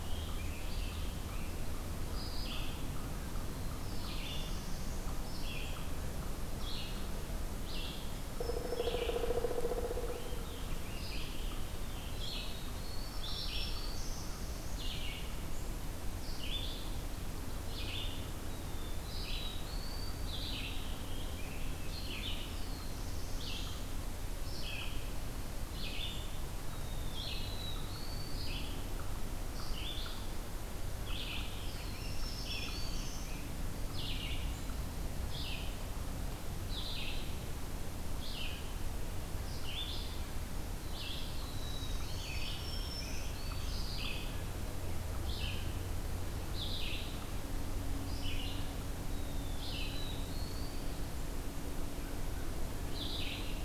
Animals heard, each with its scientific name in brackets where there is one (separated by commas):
Pileated Woodpecker (Dryocopus pileatus), American Robin (Turdus migratorius), Black-throated Green Warbler (Setophaga virens), Red-eyed Vireo (Vireo olivaceus), Black-throated Blue Warbler (Setophaga caerulescens), unknown mammal